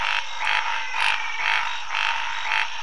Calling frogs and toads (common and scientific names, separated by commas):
Scinax fuscovarius, menwig frog (Physalaemus albonotatus)